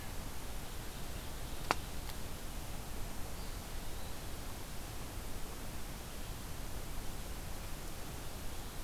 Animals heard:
forest ambience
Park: Marsh-Billings-Rockefeller National Historical Park